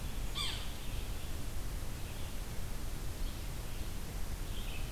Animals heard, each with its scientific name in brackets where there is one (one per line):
Yellow-bellied Sapsucker (Sphyrapicus varius)
Red-eyed Vireo (Vireo olivaceus)